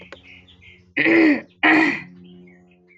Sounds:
Throat clearing